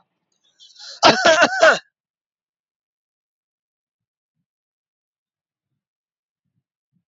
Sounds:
Cough